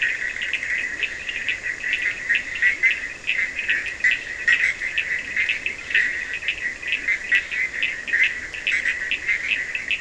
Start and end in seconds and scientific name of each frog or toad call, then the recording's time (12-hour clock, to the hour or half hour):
0.9	1.1	Leptodactylus latrans
2.7	2.9	Leptodactylus latrans
4.4	4.8	Boana leptolineata
5.2	8.7	Leptodactylus latrans
8.7	8.9	Boana leptolineata
4am